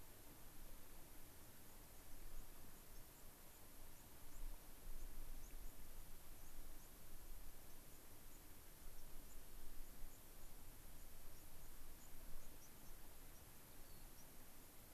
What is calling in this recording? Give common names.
White-crowned Sparrow, Rock Wren